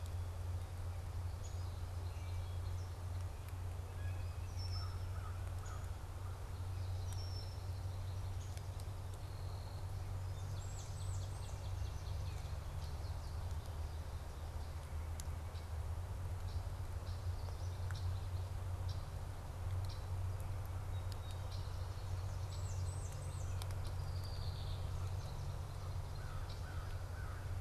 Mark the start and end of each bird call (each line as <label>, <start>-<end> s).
Downy Woodpecker (Dryobates pubescens), 1.4-1.6 s
Wood Thrush (Hylocichla mustelina), 2.0-2.8 s
Blue Jay (Cyanocitta cristata), 3.8-4.4 s
Red-winged Blackbird (Agelaius phoeniceus), 4.3-5.2 s
American Crow (Corvus brachyrhynchos), 4.5-6.6 s
Red-winged Blackbird (Agelaius phoeniceus), 6.9-7.7 s
Song Sparrow (Melospiza melodia), 8.3-10.6 s
Blackburnian Warbler (Setophaga fusca), 10.1-11.9 s
Swamp Sparrow (Melospiza georgiana), 10.5-12.8 s
American Goldfinch (Spinus tristis), 12.7-14.2 s
Red-winged Blackbird (Agelaius phoeniceus), 15.4-17.3 s
American Goldfinch (Spinus tristis), 16.7-18.6 s
Red-winged Blackbird (Agelaius phoeniceus), 17.9-20.1 s
Red-winged Blackbird (Agelaius phoeniceus), 21.5-21.7 s
Blackburnian Warbler (Setophaga fusca), 22.1-24.0 s
Red-winged Blackbird (Agelaius phoeniceus), 22.5-22.7 s
Red-winged Blackbird (Agelaius phoeniceus), 23.6-25.1 s
American Goldfinch (Spinus tristis), 24.9-26.4 s
American Crow (Corvus brachyrhynchos), 26.1-27.6 s
Red-winged Blackbird (Agelaius phoeniceus), 26.4-26.9 s